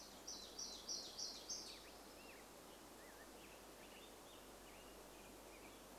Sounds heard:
Black-headed Grosbeak song
warbler song

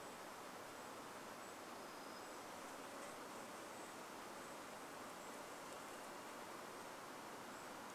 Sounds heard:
insect buzz
Golden-crowned Kinglet call
unidentified sound

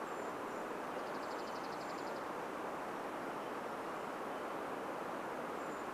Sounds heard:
Dark-eyed Junco song
Brown Creeper call

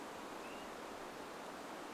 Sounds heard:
Swainson's Thrush call

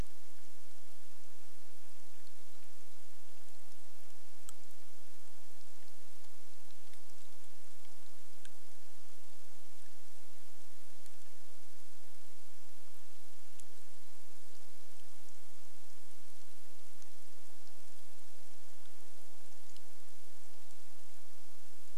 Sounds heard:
rain

